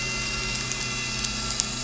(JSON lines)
{"label": "anthrophony, boat engine", "recorder": "SoundTrap 300"}